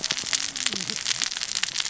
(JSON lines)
{"label": "biophony, cascading saw", "recorder": "SoundTrap 600 or HydroMoth"}